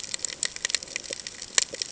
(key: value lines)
label: ambient
recorder: HydroMoth